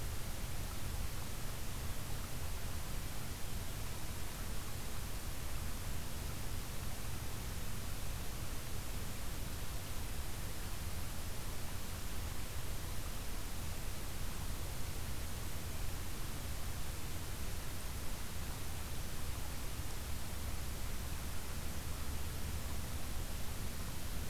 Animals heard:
forest ambience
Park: Acadia National Park